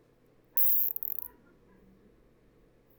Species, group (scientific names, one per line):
Isophya longicaudata
Orthoptera